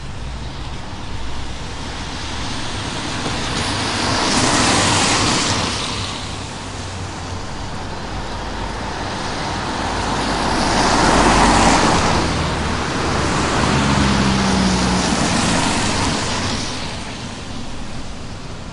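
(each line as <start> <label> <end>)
0.1 Cars drive on a wet road during light rainfall, producing soft, consistent hissing and whooshing noises. 18.7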